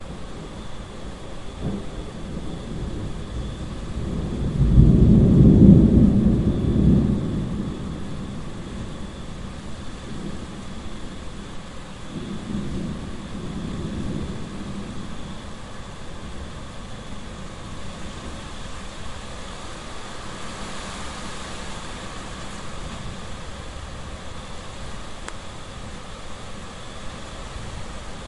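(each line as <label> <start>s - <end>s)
Cicadas chorusing faintly and repeatedly in the background. 0.0s - 28.3s
Rough rain falling in a uniform pattern. 0.0s - 28.3s
Strong wind blowing in an unpredictable pattern. 0.0s - 28.3s
A harsh wind storm is blowing. 4.1s - 9.3s
The sound of wind increasing in strength. 11.8s - 15.5s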